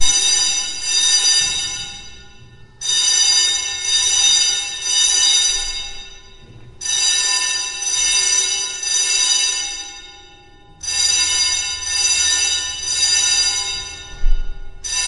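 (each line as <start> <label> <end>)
0.0 Two pulses of a fire alarm bell ringing and echoing. 2.0
2.8 Three pulses of a fire alarm bell ringing and echoing through a building. 6.1
6.7 Three pulses of a fire alarm bell ringing and echoing through a building. 9.9
10.7 Three pulses of a fire alarm bell ringing and echoing through a building. 14.0
14.8 A fire alarm bell rings and then stops abruptly. 15.1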